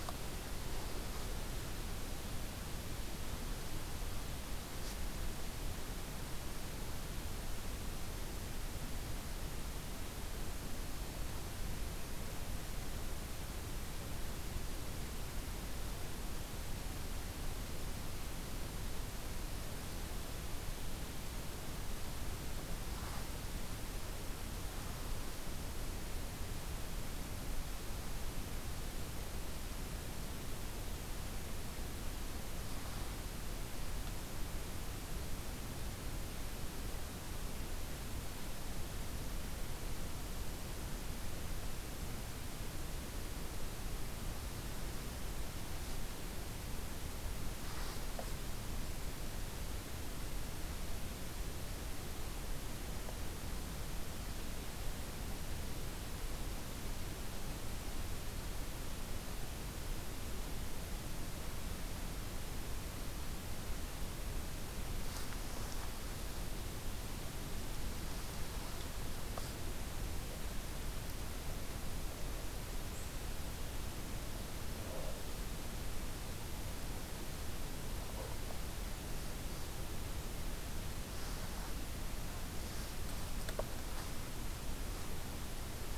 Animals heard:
forest ambience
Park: Katahdin Woods and Waters National Monument